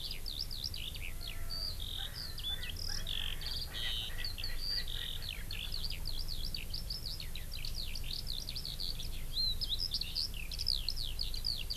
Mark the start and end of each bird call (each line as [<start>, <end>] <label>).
[0.00, 11.76] Eurasian Skylark (Alauda arvensis)
[1.03, 6.13] Erckel's Francolin (Pternistis erckelii)